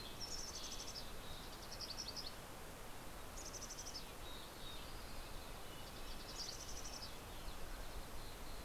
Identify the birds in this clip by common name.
Red-breasted Nuthatch, Mountain Chickadee